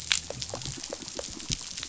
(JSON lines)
{"label": "biophony", "recorder": "SoundTrap 500"}